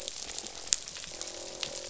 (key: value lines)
label: biophony, croak
recorder: SoundTrap 500